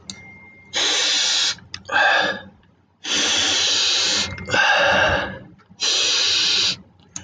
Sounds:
Sniff